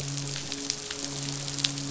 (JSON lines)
{"label": "biophony, midshipman", "recorder": "SoundTrap 500"}